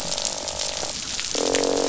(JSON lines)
{"label": "biophony, croak", "recorder": "SoundTrap 500"}